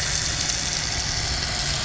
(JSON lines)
{"label": "anthrophony, boat engine", "recorder": "SoundTrap 500"}